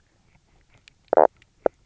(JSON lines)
{"label": "biophony, knock croak", "recorder": "SoundTrap 300"}